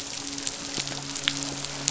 {"label": "biophony, midshipman", "recorder": "SoundTrap 500"}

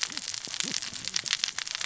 {"label": "biophony, cascading saw", "recorder": "SoundTrap 600 or HydroMoth"}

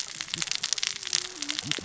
{"label": "biophony, cascading saw", "recorder": "SoundTrap 600 or HydroMoth"}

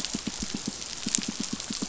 {"label": "biophony, pulse", "recorder": "SoundTrap 500"}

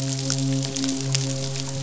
{"label": "biophony, midshipman", "recorder": "SoundTrap 500"}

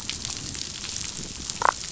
{"label": "biophony, damselfish", "recorder": "SoundTrap 500"}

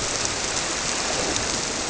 {"label": "biophony", "recorder": "SoundTrap 300"}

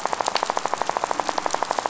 {"label": "biophony, rattle", "recorder": "SoundTrap 500"}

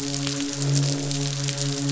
{"label": "biophony, midshipman", "recorder": "SoundTrap 500"}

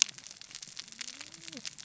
{"label": "biophony, cascading saw", "recorder": "SoundTrap 600 or HydroMoth"}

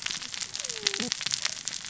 {"label": "biophony, cascading saw", "recorder": "SoundTrap 600 or HydroMoth"}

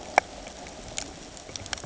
{"label": "ambient", "recorder": "HydroMoth"}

